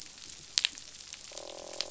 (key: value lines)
label: biophony, croak
recorder: SoundTrap 500